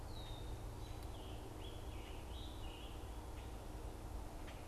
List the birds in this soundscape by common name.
Red-winged Blackbird, Scarlet Tanager, Common Grackle